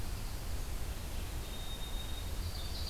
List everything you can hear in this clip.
White-throated Sparrow, Ovenbird